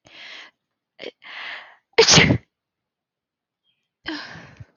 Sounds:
Sneeze